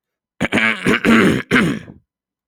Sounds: Throat clearing